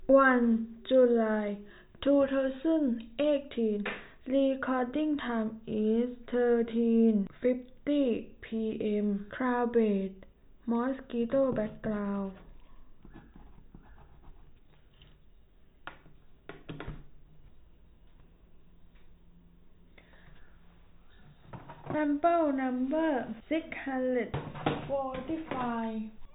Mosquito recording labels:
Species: no mosquito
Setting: cup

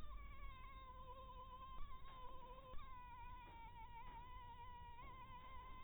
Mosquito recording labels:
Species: Anopheles minimus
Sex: female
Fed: blood-fed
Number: one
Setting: cup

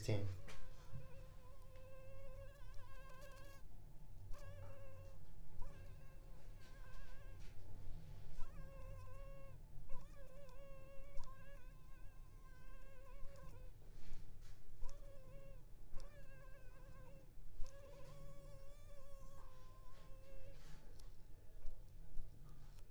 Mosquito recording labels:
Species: Anopheles arabiensis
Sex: female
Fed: unfed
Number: one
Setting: cup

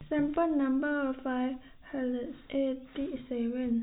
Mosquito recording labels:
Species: no mosquito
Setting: cup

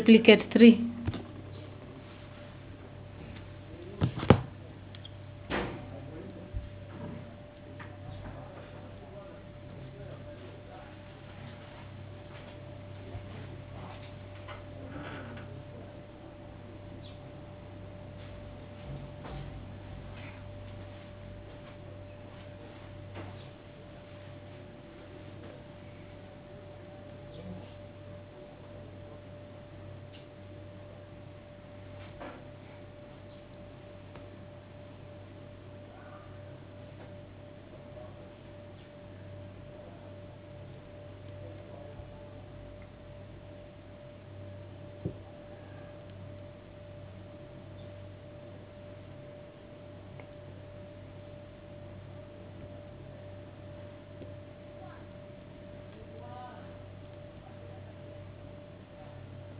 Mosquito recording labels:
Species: no mosquito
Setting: insect culture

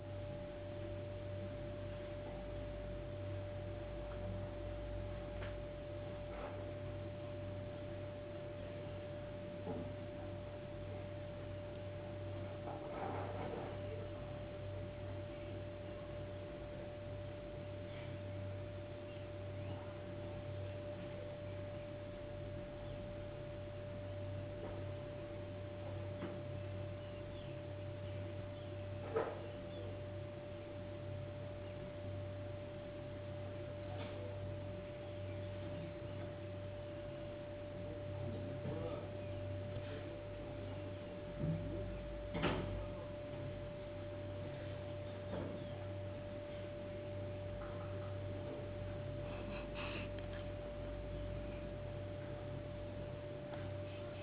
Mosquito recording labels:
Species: no mosquito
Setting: insect culture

